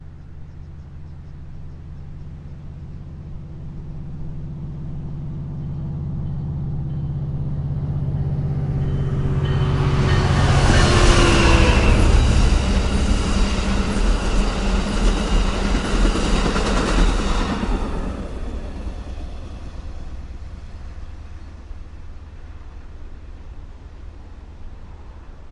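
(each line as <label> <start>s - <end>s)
A passenger train passes by with rhythmic rail and locomotive noise, growing steadily louder as it approaches and then fading as it moves away. 0.0s - 25.5s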